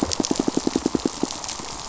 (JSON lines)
{"label": "biophony, pulse", "recorder": "SoundTrap 500"}